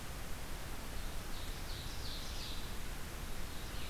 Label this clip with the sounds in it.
Blue-headed Vireo, Red-eyed Vireo, Ovenbird